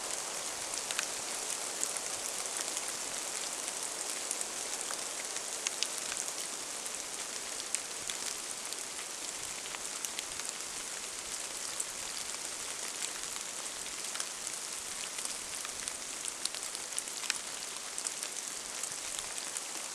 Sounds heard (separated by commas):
rain